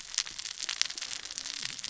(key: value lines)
label: biophony, cascading saw
recorder: SoundTrap 600 or HydroMoth